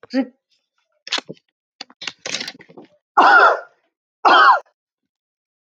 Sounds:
Cough